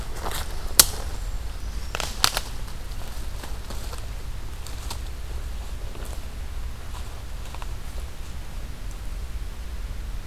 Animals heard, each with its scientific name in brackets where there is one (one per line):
Hermit Thrush (Catharus guttatus)